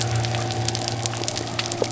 {"label": "biophony", "recorder": "SoundTrap 300"}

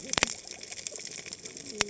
{"label": "biophony, cascading saw", "recorder": "HydroMoth"}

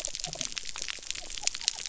{"label": "biophony", "recorder": "SoundTrap 300"}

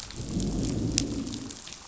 {"label": "biophony, growl", "recorder": "SoundTrap 500"}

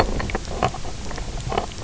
{"label": "biophony, knock croak", "recorder": "SoundTrap 300"}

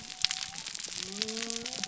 {"label": "biophony", "recorder": "SoundTrap 300"}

